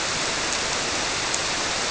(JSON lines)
{"label": "biophony", "recorder": "SoundTrap 300"}